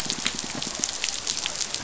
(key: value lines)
label: biophony
recorder: SoundTrap 500